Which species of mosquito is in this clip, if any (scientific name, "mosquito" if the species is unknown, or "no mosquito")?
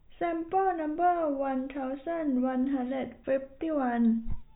no mosquito